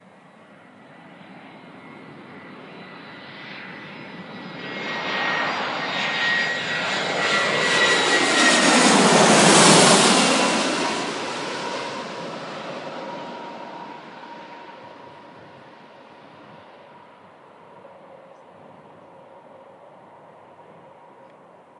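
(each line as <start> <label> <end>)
0.0 A plane is flying in the distance. 4.7
4.8 An airplane is flying nearby. 13.1
13.1 A plane is flying in the distance. 21.8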